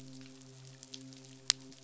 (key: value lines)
label: biophony, midshipman
recorder: SoundTrap 500